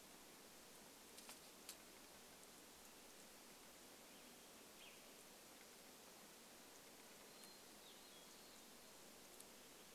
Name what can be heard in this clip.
unidentified sound, Hermit Thrush song